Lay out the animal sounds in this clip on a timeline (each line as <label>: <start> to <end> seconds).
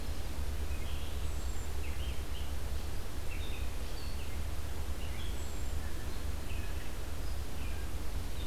Red-eyed Vireo (Vireo olivaceus): 0.0 to 8.5 seconds
Hermit Thrush (Catharus guttatus): 1.2 to 1.8 seconds
Hermit Thrush (Catharus guttatus): 5.2 to 5.9 seconds